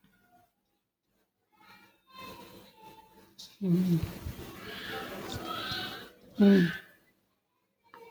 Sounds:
Sigh